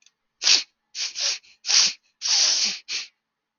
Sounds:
Sniff